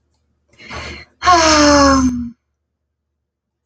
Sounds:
Sigh